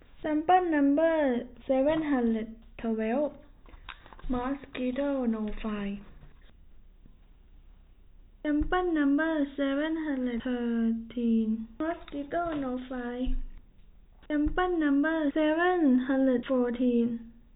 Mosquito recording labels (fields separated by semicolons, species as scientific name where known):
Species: no mosquito; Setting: cup